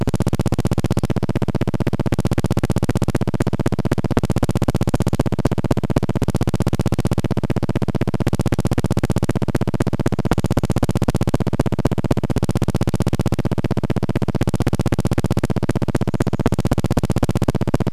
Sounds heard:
recorder noise

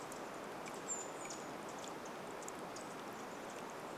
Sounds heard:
Pacific Wren call, Brown Creeper call

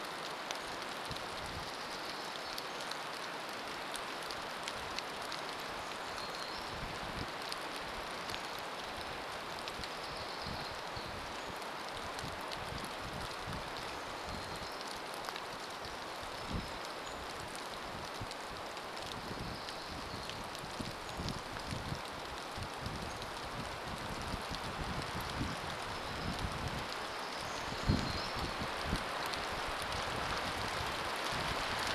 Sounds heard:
unidentified bird chip note, rain, unidentified sound, warbler song

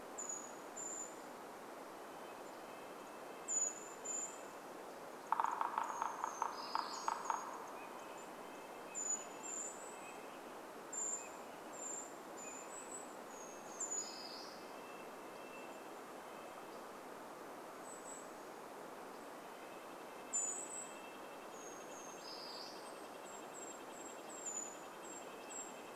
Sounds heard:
Red-breasted Nuthatch call, woodpecker drumming, Brown Creeper song, Brown Creeper call, Golden-crowned Kinglet song, Red-breasted Nuthatch song

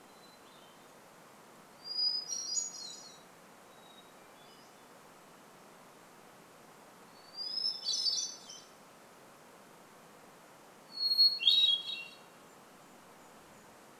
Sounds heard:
Pacific-slope Flycatcher call, Golden-crowned Kinglet call, Hermit Thrush song

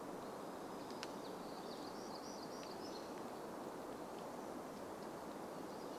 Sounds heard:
warbler song, American Robin song

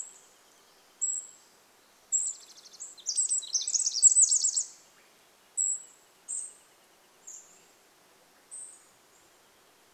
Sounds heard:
Swainson's Thrush song, Cedar Waxwing call, Pacific Wren song, Swainson's Thrush call, Wrentit song

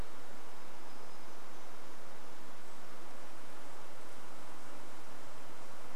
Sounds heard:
unidentified sound, insect buzz, Golden-crowned Kinglet call

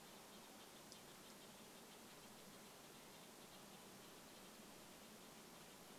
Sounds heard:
Mountain Quail call, Red-breasted Nuthatch song

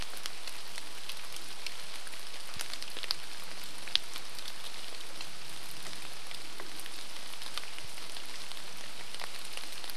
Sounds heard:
airplane, rain

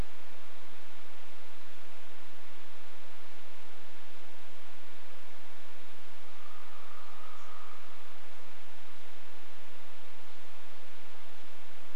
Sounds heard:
Lazuli Bunting call, woodpecker drumming

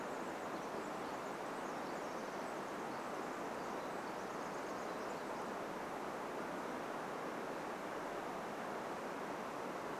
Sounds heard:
Pacific Wren song

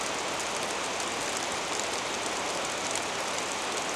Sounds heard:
rain

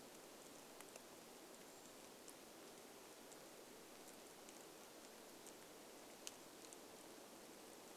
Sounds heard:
rain, Brown Creeper call

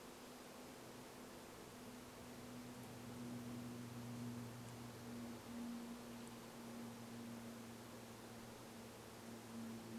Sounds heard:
airplane

